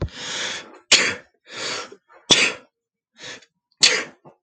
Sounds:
Sneeze